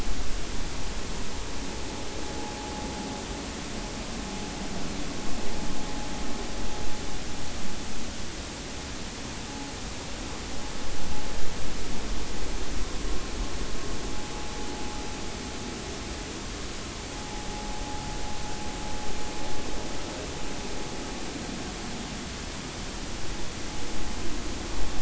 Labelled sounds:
17.2	17.5	vessel noise, 0.80 to 0.93 kHz

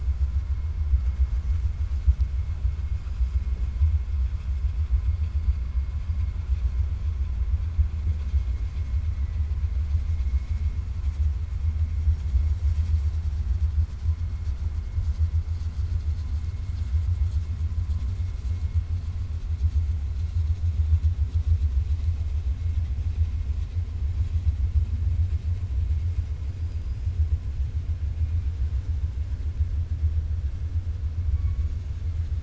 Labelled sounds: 26.6	27.0	killer whale, 4.1 to 5.2 kHz

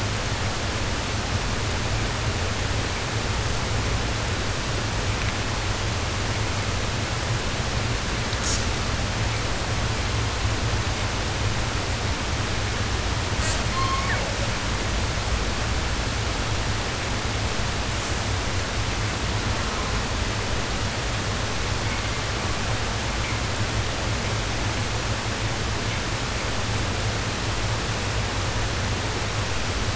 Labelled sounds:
8.4	8.7	killer whale, southern resident, J pod, call S05, 1.6 to 8.0 kHz
13.3	14.5	killer whale, southern resident, J pod, call S05 and call S06, 0.10 to 8.0 kHz
17.9	18.2	killer whale, 5.2 to 8.0 kHz
19.3	20.1	killer whale, southern resident, 0.52 to 1.8 kHz

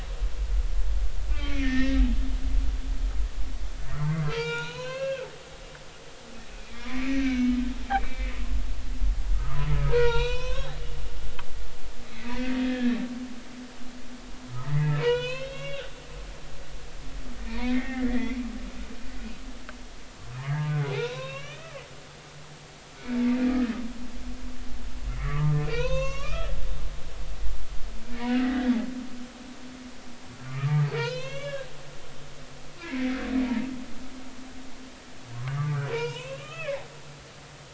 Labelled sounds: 1.3	2.0	humpback whale, 1.1 to 2.4 kHz
4.0	5.3	humpback whale, 0.83 to 7.2 kHz
6.8	7.5	humpback whale, 1.5 to 2.6 kHz
7.9	8.4	humpback whale, 2.0 to 2.4 kHz
9.3	10.8	humpback whale, 0.86 to 6.2 kHz
12.3	13.0	humpback whale, 1.6 to 2.1 kHz
14.6	15.8	humpback whale, 0.90 to 5.1 kHz
17.5	18.4	humpback whale, 0.86 to 3.4 kHz
20.7	21.8	humpback whale, 0.80 to 4.1 kHz
25.2	26.5	humpback whale, 0.93 to 6.8 kHz
28.1	28.7	humpback whale, 1.7 to 2.1 kHz
30.4	31.7	humpback whale, 0.86 to 6.1 kHz
32.8	33.7	humpback whale, 0.86 to 2.3 kHz
35.3	36.8	humpback whale, 0.90 to 3.4 kHz

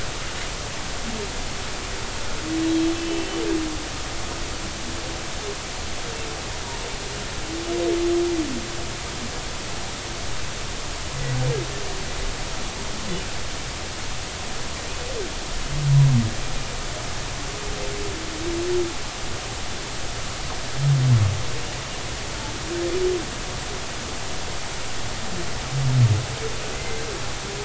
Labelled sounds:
2.9	3.3	humpback whale, 2.6 to 2.7 kHz
26.7	27.0	humpback whale, 2.0 to 2.1 kHz

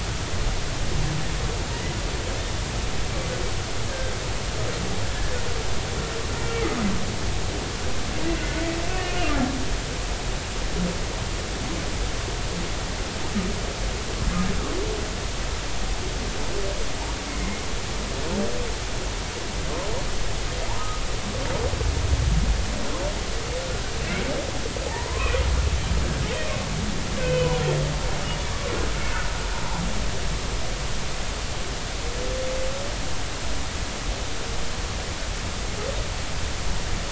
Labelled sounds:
3.9	4.1	humpback whale, 1.5 to 1.7 kHz
5.1	5.4	humpback whale, 1.6 to 1.8 kHz
9.1	9.4	humpback whale, 2.3 to 2.6 kHz
17.4	17.6	humpback whale, 2.0 to 2.2 kHz
20.8	21.0	humpback whale, 1.2 to 1.3 kHz
24.9	25.3	humpback whale, 0.80 to 1.3 kHz
27.1	27.6	humpback whale, 1.4 to 3.1 kHz

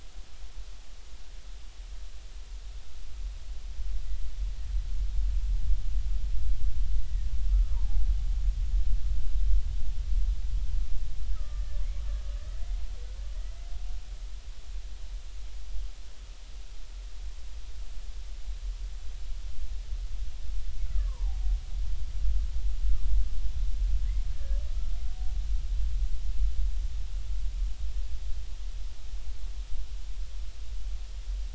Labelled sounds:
7.0	8.0	killer whale, Bigg's (transient), 0.80 to 2.0 kHz
11.3	11.8	killer whale, Bigg's (transient), 1.2 to 1.9 kHz
20.8	21.4	killer whale, Bigg's (transient), 0.80 to 1.5 kHz
24.4	24.6	killer whale, Bigg's (transient), 1.6 to 1.9 kHz

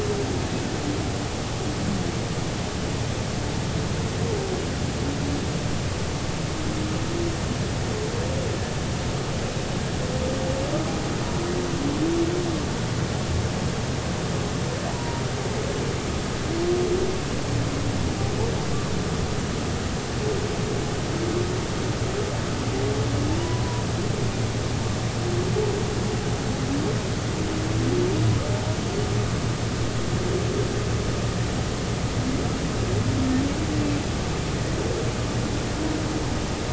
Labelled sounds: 14.9	15.2	humpback whale, 0.86 to 1.0 kHz
23.4	23.8	humpback whale, 0.93 to 1.0 kHz

